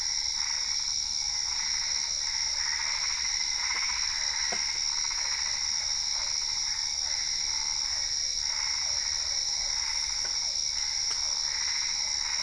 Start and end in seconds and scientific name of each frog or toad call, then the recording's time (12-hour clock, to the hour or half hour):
0.0	12.4	Boana albopunctata
2.0	3.1	Boana lundii
5.4	6.3	Boana lundii
8.4	9.8	Boana lundii
8:30pm